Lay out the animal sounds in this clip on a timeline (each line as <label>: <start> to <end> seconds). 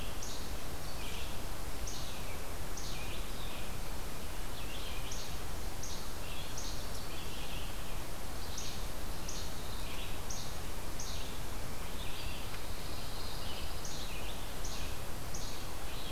Red-eyed Vireo (Vireo olivaceus): 0.0 to 16.1 seconds
Least Flycatcher (Empidonax minimus): 0.0 to 0.6 seconds
Least Flycatcher (Empidonax minimus): 1.8 to 3.0 seconds
Least Flycatcher (Empidonax minimus): 5.1 to 6.8 seconds
Least Flycatcher (Empidonax minimus): 8.4 to 11.2 seconds
Pine Warbler (Setophaga pinus): 12.4 to 14.2 seconds
Least Flycatcher (Empidonax minimus): 13.7 to 15.6 seconds